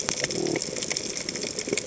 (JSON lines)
{"label": "biophony", "recorder": "HydroMoth"}